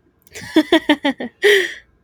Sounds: Laughter